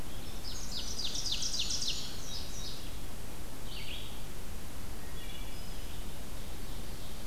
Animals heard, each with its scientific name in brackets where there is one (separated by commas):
Wood Thrush (Hylocichla mustelina), Red-eyed Vireo (Vireo olivaceus), Indigo Bunting (Passerina cyanea), Ovenbird (Seiurus aurocapilla)